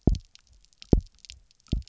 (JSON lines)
{"label": "biophony, double pulse", "recorder": "SoundTrap 300"}